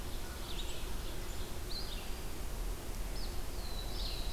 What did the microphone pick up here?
Ovenbird, Red-eyed Vireo, Black-throated Blue Warbler